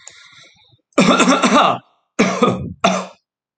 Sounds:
Cough